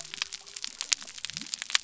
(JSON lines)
{"label": "biophony", "recorder": "SoundTrap 300"}